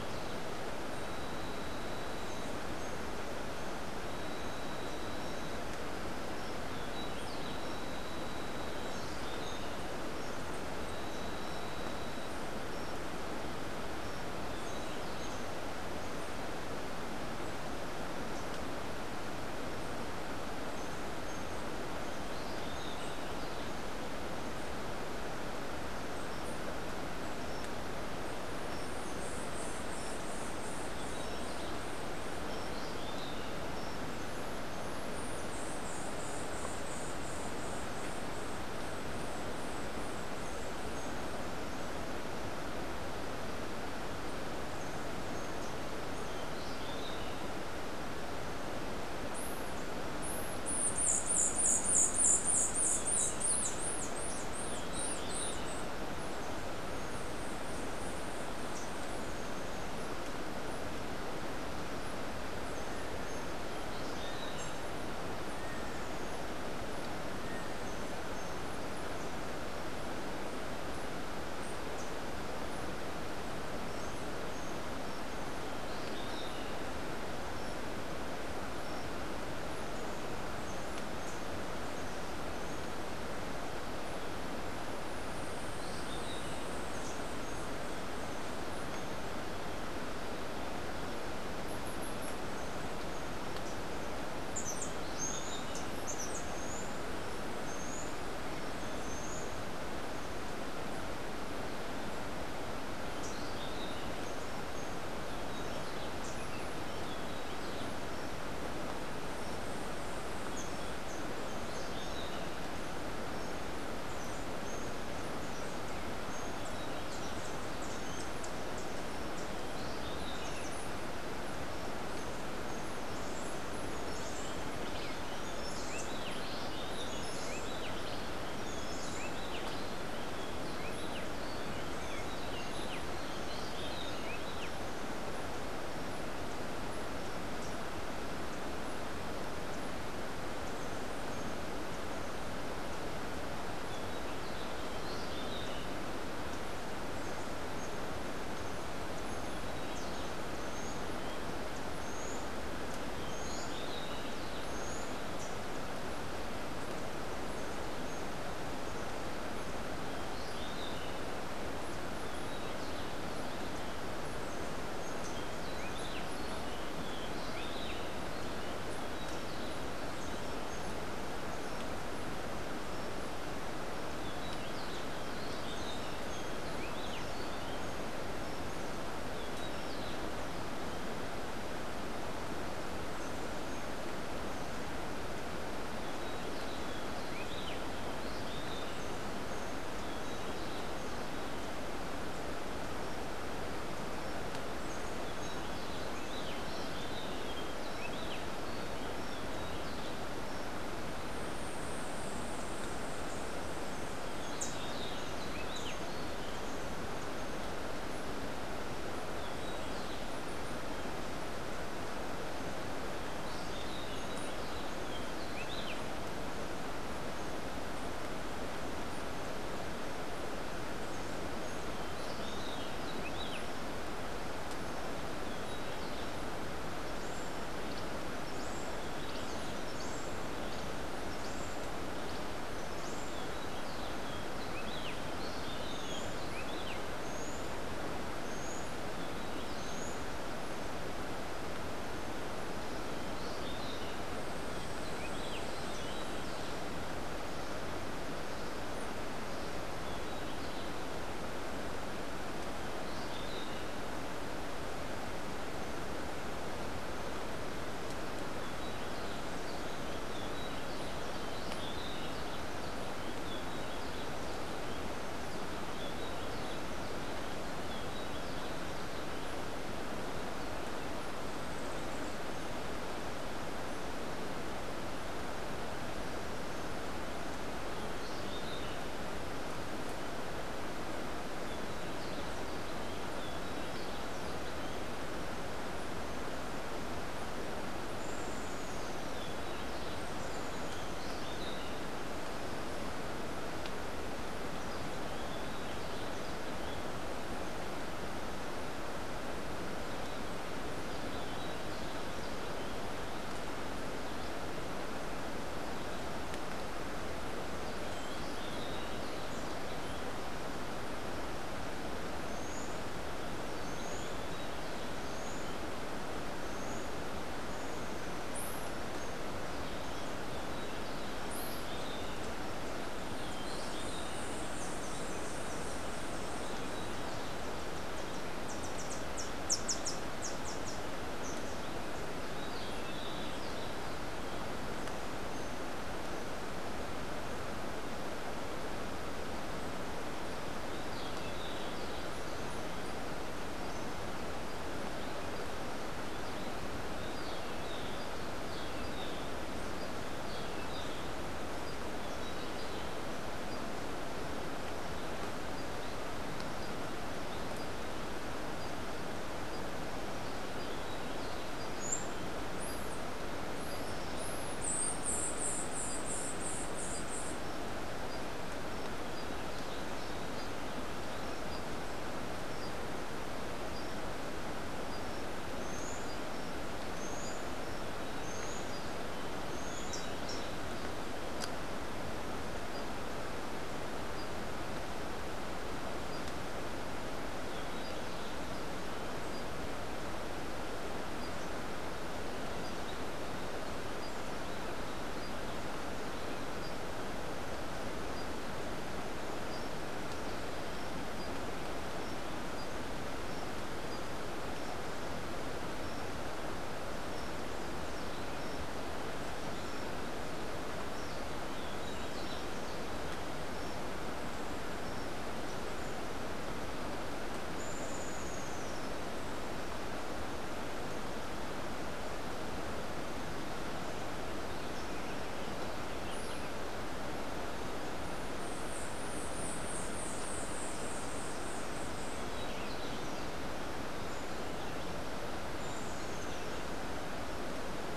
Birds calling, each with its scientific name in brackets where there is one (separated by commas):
Rufous-breasted Wren (Pheugopedius rutilus), Cabanis's Wren (Cantorchilus modestus), Rufous-tailed Hummingbird (Amazilia tzacatl), Buff-throated Saltator (Saltator maximus), White-eared Ground-Sparrow (Melozone leucotis)